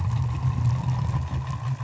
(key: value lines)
label: anthrophony, boat engine
recorder: SoundTrap 500